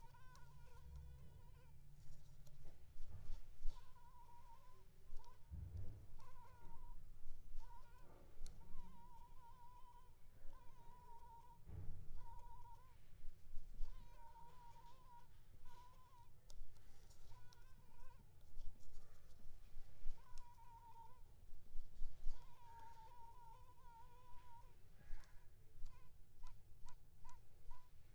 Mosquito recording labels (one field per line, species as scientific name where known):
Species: Culex pipiens complex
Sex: female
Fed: unfed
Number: one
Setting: cup